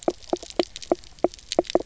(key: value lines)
label: biophony, knock croak
recorder: SoundTrap 300